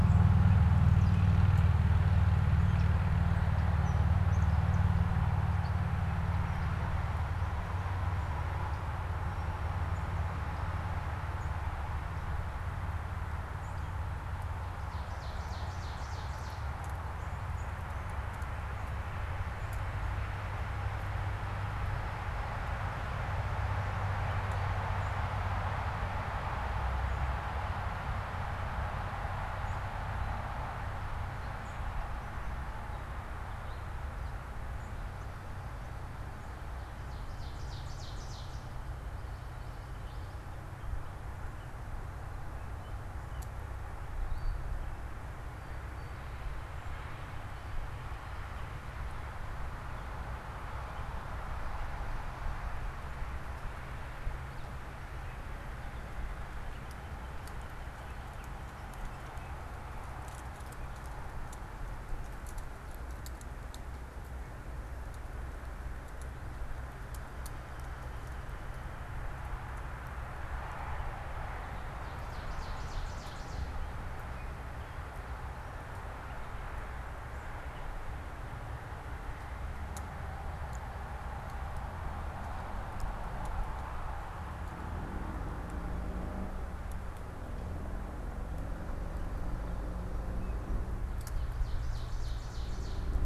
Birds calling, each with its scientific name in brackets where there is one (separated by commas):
Gray Catbird (Dumetella carolinensis), unidentified bird, Ovenbird (Seiurus aurocapilla)